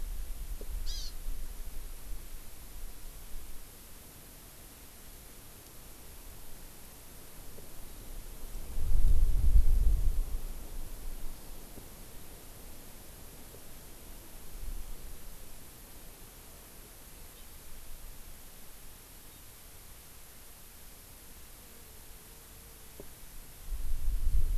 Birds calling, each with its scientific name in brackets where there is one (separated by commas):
Hawaii Amakihi (Chlorodrepanis virens)